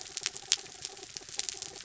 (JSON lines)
{"label": "anthrophony, mechanical", "recorder": "SoundTrap 300"}